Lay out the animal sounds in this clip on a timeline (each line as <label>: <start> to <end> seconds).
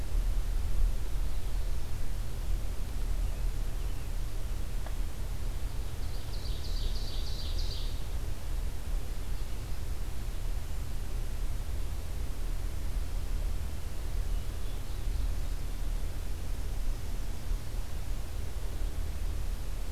American Robin (Turdus migratorius): 3.1 to 4.1 seconds
Ovenbird (Seiurus aurocapilla): 5.7 to 8.2 seconds
Ovenbird (Seiurus aurocapilla): 14.5 to 16.0 seconds